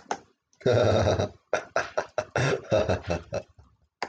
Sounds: Laughter